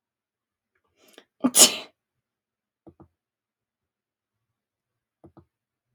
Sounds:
Sneeze